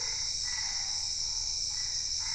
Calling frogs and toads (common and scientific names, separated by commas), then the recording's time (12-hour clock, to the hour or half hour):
Boana albopunctata
9pm